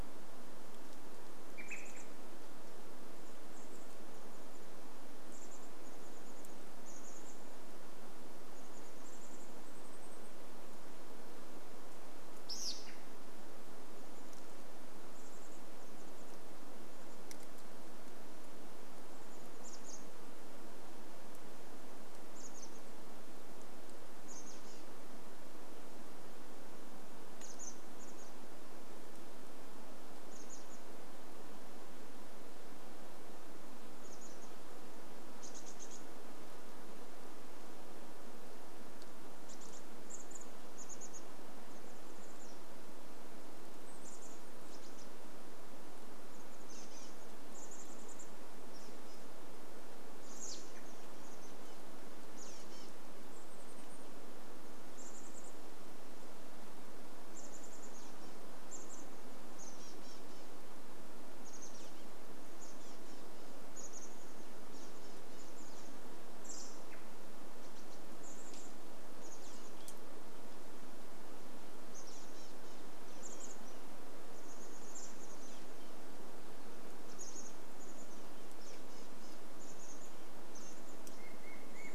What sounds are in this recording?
Olive-sided Flycatcher call, Chestnut-backed Chickadee call, American Robin call, unidentified sound